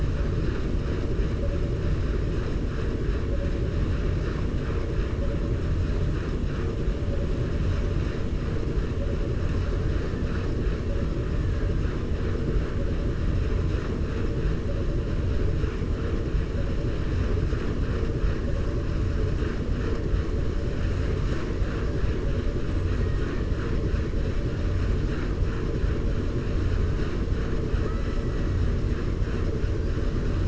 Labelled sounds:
27.7	28.2	killer whale, 0.41 to 2.0 kHz

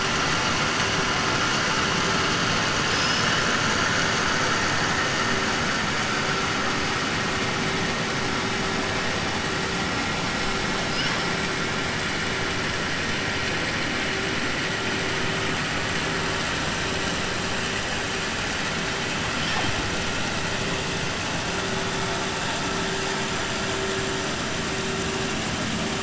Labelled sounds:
2.8	3.5	killer whale, 1.6 to 6.1 kHz

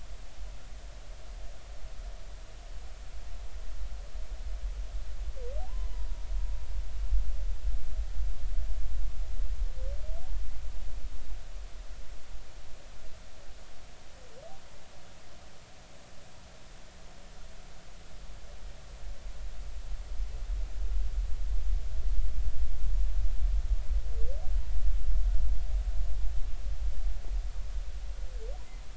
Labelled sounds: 5.6	6.2	humpback whale, 0.80 to 1.1 kHz

